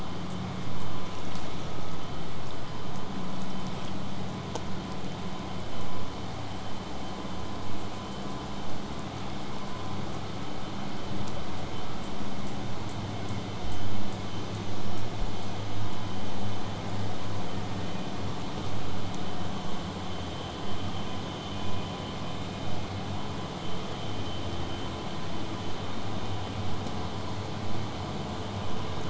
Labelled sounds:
21.6	26.6	vessel noise, 0 to 8.0 kHz

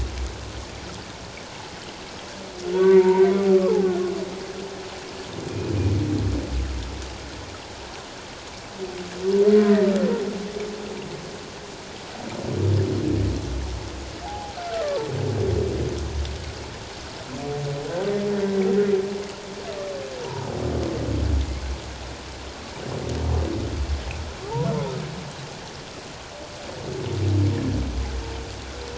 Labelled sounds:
2.7	3.8	humpback whale, 0.78 to 2.3 kHz
14.2	14.6	humpback whale, 0.78 to 0.94 kHz
20.2	20.5	humpback whale, 0.84 to 1.0 kHz

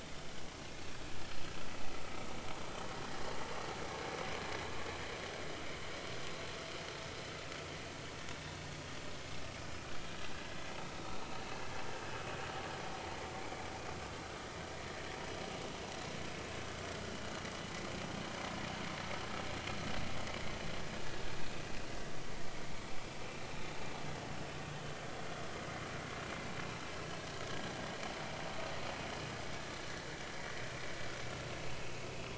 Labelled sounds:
13.4	13.7	vessel noise, 2.2 to 2.4 kHz
31.9	32.3	vessel noise, 2.4 to 2.8 kHz

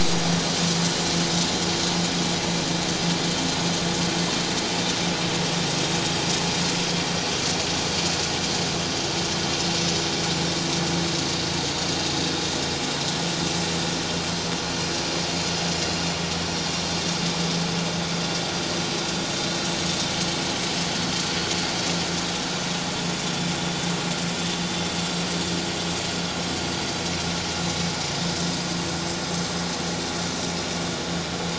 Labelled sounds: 27.4	27.6	vessel noise, 7.0 to 7.1 kHz

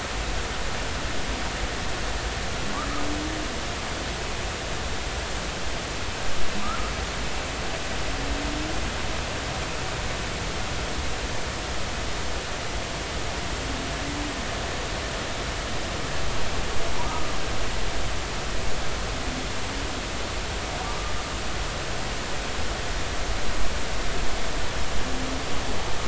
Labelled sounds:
17.1	17.3	humpback whale, 1.2 to 1.3 kHz

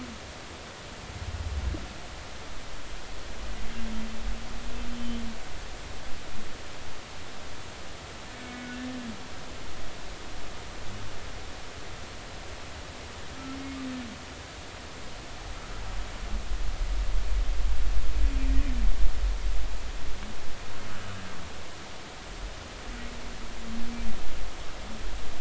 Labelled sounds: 4.9	5.2	humpback whale, 3.0 to 3.1 kHz
8.5	8.8	humpback whale, 1.4 to 2.3 kHz

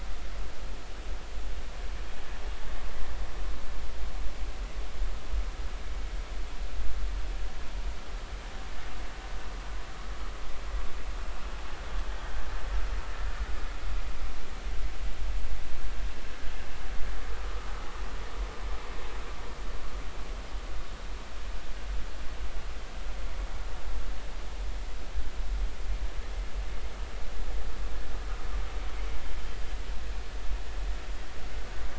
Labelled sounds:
17.4	17.7	vessel noise, 1.2 to 1.3 kHz

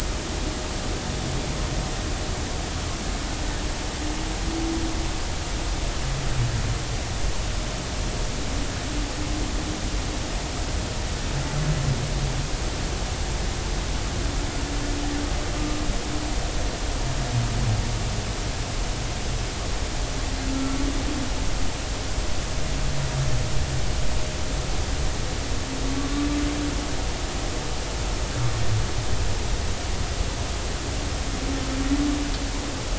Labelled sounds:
20.5	20.8	humpback whale, 1.3 to 1.4 kHz

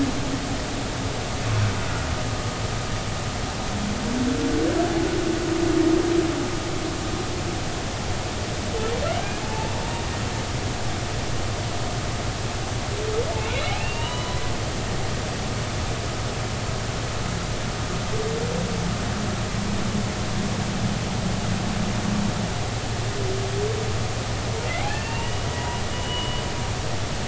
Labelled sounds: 9.4	9.7	humpback whale, 0.83 to 0.93 kHz
13.5	14.4	humpback whale, 0.90 to 4.0 kHz
24.7	26.5	humpback whale, 0.86 to 4.7 kHz

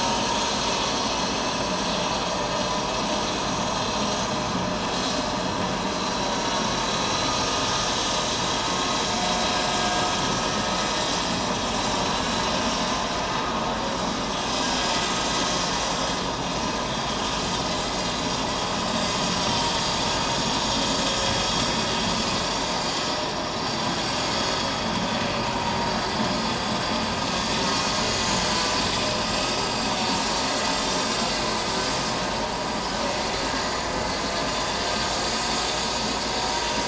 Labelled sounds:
7.3	7.6	vessel noise, 6.4 to 6.5 kHz
19.1	19.4	vessel noise, 6.6 to 6.7 kHz
29.2	29.5	vessel noise, 7.2 to 7.5 kHz

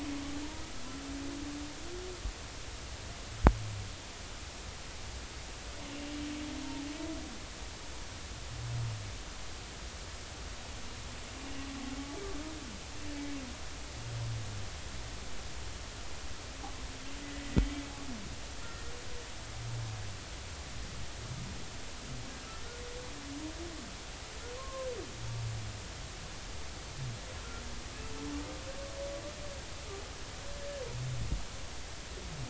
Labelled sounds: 18.6	18.9	humpback whale, 1.8 to 1.9 kHz
24.6	24.9	humpback whale, 0.99 to 1.1 kHz

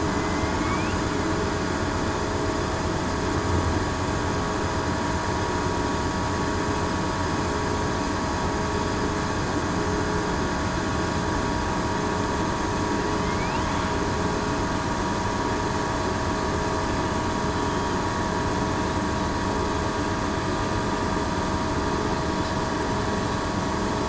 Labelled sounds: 0.1	0.5	killer whale, southern resident, 2.0 to 2.1 kHz

